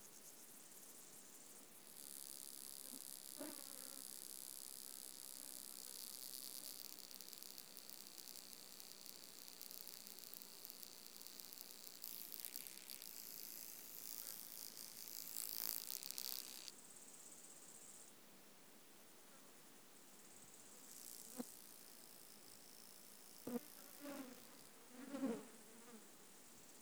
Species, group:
Stenobothrus rubicundulus
Orthoptera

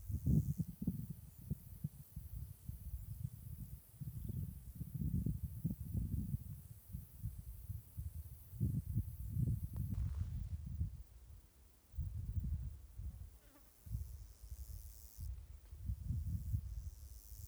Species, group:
Stenobothrus nigromaculatus
Orthoptera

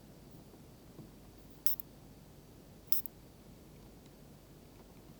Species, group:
Isophya lemnotica
Orthoptera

